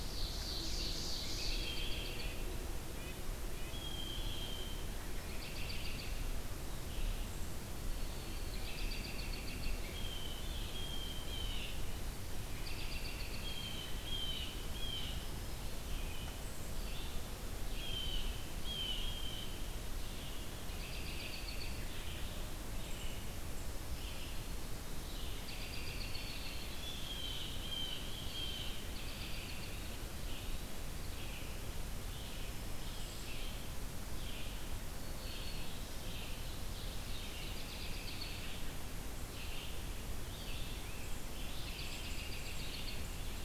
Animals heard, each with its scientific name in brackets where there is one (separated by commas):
Ovenbird (Seiurus aurocapilla), Blue Jay (Cyanocitta cristata), Red-breasted Nuthatch (Sitta canadensis), Black-throated Green Warbler (Setophaga virens), American Robin (Turdus migratorius), Red-eyed Vireo (Vireo olivaceus), Rose-breasted Grosbeak (Pheucticus ludovicianus)